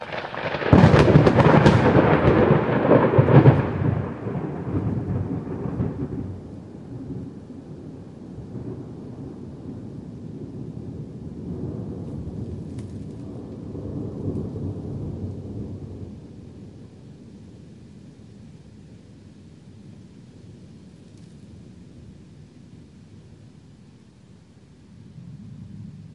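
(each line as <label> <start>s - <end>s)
A lightning bolt crackles. 0.0s - 0.7s
Thunder growling. 0.7s - 4.1s
Thunder fades away. 4.1s - 26.1s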